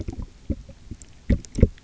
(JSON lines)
{"label": "geophony, waves", "recorder": "SoundTrap 300"}